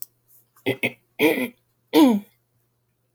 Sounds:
Throat clearing